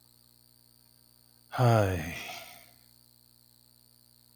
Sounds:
Sigh